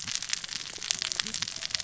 {"label": "biophony, cascading saw", "recorder": "SoundTrap 600 or HydroMoth"}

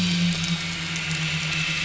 {"label": "anthrophony, boat engine", "recorder": "SoundTrap 500"}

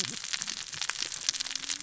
{"label": "biophony, cascading saw", "recorder": "SoundTrap 600 or HydroMoth"}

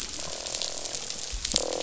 {"label": "biophony, croak", "recorder": "SoundTrap 500"}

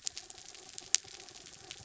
{"label": "anthrophony, mechanical", "recorder": "SoundTrap 300"}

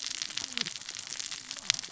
{"label": "biophony, cascading saw", "recorder": "SoundTrap 600 or HydroMoth"}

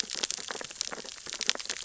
{"label": "biophony, sea urchins (Echinidae)", "recorder": "SoundTrap 600 or HydroMoth"}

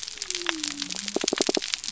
{"label": "biophony", "recorder": "SoundTrap 300"}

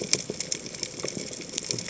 {"label": "biophony, chatter", "recorder": "HydroMoth"}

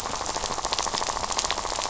{"label": "biophony, rattle", "recorder": "SoundTrap 500"}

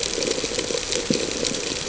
{"label": "ambient", "recorder": "HydroMoth"}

